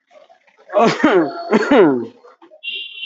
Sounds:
Cough